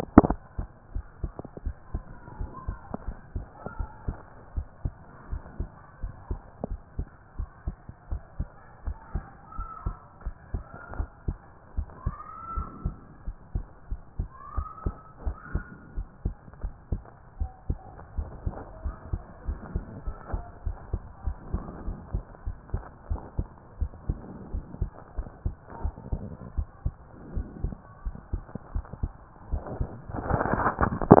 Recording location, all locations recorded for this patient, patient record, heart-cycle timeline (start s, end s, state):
pulmonary valve (PV)
aortic valve (AV)+pulmonary valve (PV)+tricuspid valve (TV)+mitral valve (MV)+mitral valve (MV)
#Age: Adolescent
#Sex: Female
#Height: 154.0 cm
#Weight: 44.2 kg
#Pregnancy status: False
#Murmur: Absent
#Murmur locations: nan
#Most audible location: nan
#Systolic murmur timing: nan
#Systolic murmur shape: nan
#Systolic murmur grading: nan
#Systolic murmur pitch: nan
#Systolic murmur quality: nan
#Diastolic murmur timing: nan
#Diastolic murmur shape: nan
#Diastolic murmur grading: nan
#Diastolic murmur pitch: nan
#Diastolic murmur quality: nan
#Outcome: Abnormal
#Campaign: 2014 screening campaign
0.00	0.22	diastole
0.22	0.38	S1
0.38	0.58	systole
0.58	0.66	S2
0.66	0.94	diastole
0.94	1.04	S1
1.04	1.22	systole
1.22	1.32	S2
1.32	1.64	diastole
1.64	1.76	S1
1.76	1.92	systole
1.92	2.02	S2
2.02	2.38	diastole
2.38	2.50	S1
2.50	2.66	systole
2.66	2.78	S2
2.78	3.06	diastole
3.06	3.16	S1
3.16	3.34	systole
3.34	3.46	S2
3.46	3.78	diastole
3.78	3.88	S1
3.88	4.06	systole
4.06	4.16	S2
4.16	4.56	diastole
4.56	4.66	S1
4.66	4.84	systole
4.84	4.92	S2
4.92	5.30	diastole
5.30	5.42	S1
5.42	5.58	systole
5.58	5.68	S2
5.68	6.02	diastole
6.02	6.14	S1
6.14	6.30	systole
6.30	6.40	S2
6.40	6.68	diastole
6.68	6.80	S1
6.80	6.98	systole
6.98	7.08	S2
7.08	7.38	diastole
7.38	7.48	S1
7.48	7.66	systole
7.66	7.76	S2
7.76	8.10	diastole
8.10	8.22	S1
8.22	8.38	systole
8.38	8.48	S2
8.48	8.86	diastole
8.86	8.96	S1
8.96	9.14	systole
9.14	9.24	S2
9.24	9.58	diastole
9.58	9.68	S1
9.68	9.84	systole
9.84	9.96	S2
9.96	10.24	diastole
10.24	10.34	S1
10.34	10.52	systole
10.52	10.64	S2
10.64	10.96	diastole
10.96	11.08	S1
11.08	11.26	systole
11.26	11.38	S2
11.38	11.76	diastole
11.76	11.88	S1
11.88	12.04	systole
12.04	12.14	S2
12.14	12.56	diastole
12.56	12.68	S1
12.68	12.84	systole
12.84	12.94	S2
12.94	13.26	diastole
13.26	13.38	S1
13.38	13.54	systole
13.54	13.66	S2
13.66	13.90	diastole
13.90	14.00	S1
14.00	14.18	systole
14.18	14.28	S2
14.28	14.56	diastole
14.56	14.68	S1
14.68	14.84	systole
14.84	14.94	S2
14.94	15.24	diastole
15.24	15.36	S1
15.36	15.52	systole
15.52	15.64	S2
15.64	15.96	diastole
15.96	16.08	S1
16.08	16.24	systole
16.24	16.34	S2
16.34	16.62	diastole
16.62	16.74	S1
16.74	16.90	systole
16.90	17.02	S2
17.02	17.40	diastole
17.40	17.50	S1
17.50	17.68	systole
17.68	17.78	S2
17.78	18.16	diastole
18.16	18.30	S1
18.30	18.44	systole
18.44	18.54	S2
18.54	18.84	diastole
18.84	18.96	S1
18.96	19.12	systole
19.12	19.22	S2
19.22	19.46	diastole
19.46	19.58	S1
19.58	19.74	systole
19.74	19.84	S2
19.84	20.06	diastole
20.06	20.16	S1
20.16	20.32	systole
20.32	20.42	S2
20.42	20.66	diastole
20.66	20.76	S1
20.76	20.92	systole
20.92	21.02	S2
21.02	21.26	diastole
21.26	21.36	S1
21.36	21.52	systole
21.52	21.62	S2
21.62	21.86	diastole
21.86	21.98	S1
21.98	22.12	systole
22.12	22.24	S2
22.24	22.46	diastole
22.46	22.56	S1
22.56	22.72	systole
22.72	22.82	S2
22.82	23.10	diastole
23.10	23.20	S1
23.20	23.38	systole
23.38	23.48	S2
23.48	23.80	diastole
23.80	23.92	S1
23.92	24.08	systole
24.08	24.18	S2
24.18	24.52	diastole
24.52	24.64	S1
24.64	24.80	systole
24.80	24.90	S2
24.90	25.16	diastole
25.16	25.28	S1
25.28	25.44	systole
25.44	25.54	S2
25.54	25.82	diastole
25.82	25.94	S1
25.94	26.10	systole
26.10	26.22	S2
26.22	26.56	diastole
26.56	26.68	S1
26.68	26.84	systole
26.84	26.94	S2
26.94	27.34	diastole
27.34	27.46	S1
27.46	27.62	systole
27.62	27.74	S2
27.74	28.06	diastole
28.06	28.16	S1
28.16	28.32	systole
28.32	28.44	S2
28.44	28.74	diastole
28.74	28.84	S1
28.84	29.02	systole
29.02	29.12	S2
29.12	29.50	diastole
29.50	29.62	S1
29.62	29.78	systole
29.78	29.88	S2
29.88	30.28	diastole
30.28	30.42	S1
30.42	30.52	systole
30.52	30.66	S2
30.66	30.84	diastole
30.84	30.94	S1
30.94	31.06	systole
31.06	31.20	S2